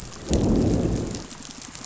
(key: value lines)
label: biophony, growl
recorder: SoundTrap 500